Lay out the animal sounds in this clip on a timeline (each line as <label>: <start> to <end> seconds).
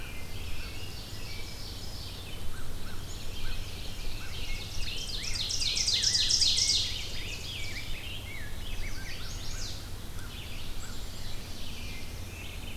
Rose-breasted Grosbeak (Pheucticus ludovicianus): 0.0 to 0.7 seconds
American Crow (Corvus brachyrhynchos): 0.0 to 1.1 seconds
Ovenbird (Seiurus aurocapilla): 0.2 to 2.1 seconds
American Robin (Turdus migratorius): 0.3 to 1.6 seconds
Red-eyed Vireo (Vireo olivaceus): 2.0 to 12.8 seconds
American Crow (Corvus brachyrhynchos): 2.3 to 12.0 seconds
Ovenbird (Seiurus aurocapilla): 2.7 to 8.2 seconds
Rose-breasted Grosbeak (Pheucticus ludovicianus): 4.6 to 9.3 seconds
Chestnut-sided Warbler (Setophaga pensylvanica): 8.6 to 9.7 seconds
Ovenbird (Seiurus aurocapilla): 10.2 to 12.0 seconds
Black-capped Chickadee (Poecile atricapillus): 10.7 to 11.5 seconds
Black-throated Blue Warbler (Setophaga caerulescens): 11.3 to 12.6 seconds